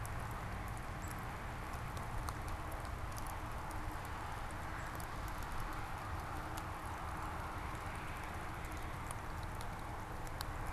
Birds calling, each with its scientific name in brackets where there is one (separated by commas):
Black-capped Chickadee (Poecile atricapillus)